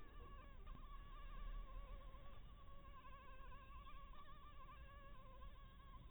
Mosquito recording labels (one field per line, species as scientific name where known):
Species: Anopheles maculatus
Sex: female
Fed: blood-fed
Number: one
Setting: cup